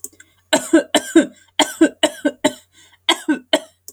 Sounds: Cough